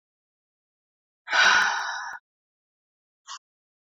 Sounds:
Sigh